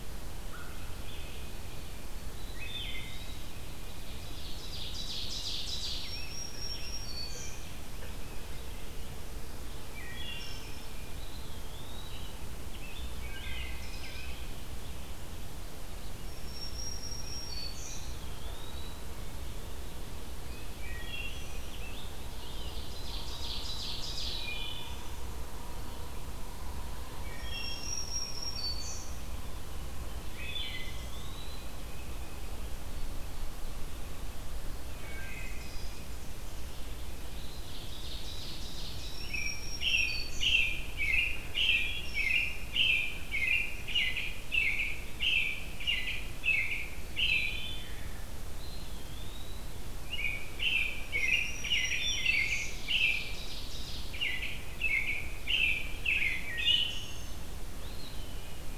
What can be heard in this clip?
American Crow, Eastern Wood-Pewee, Wood Thrush, Ovenbird, Scarlet Tanager, Black-throated Green Warbler, American Robin